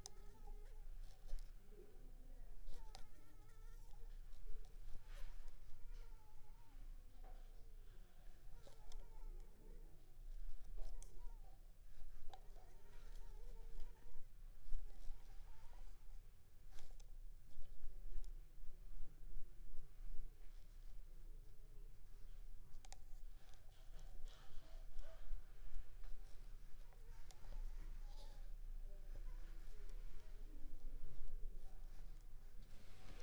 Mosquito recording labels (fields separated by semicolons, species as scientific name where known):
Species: Culex pipiens complex; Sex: female; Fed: unfed; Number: one; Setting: cup